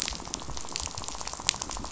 {"label": "biophony, rattle", "recorder": "SoundTrap 500"}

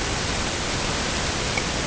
{"label": "ambient", "recorder": "HydroMoth"}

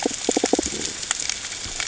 {"label": "ambient", "recorder": "HydroMoth"}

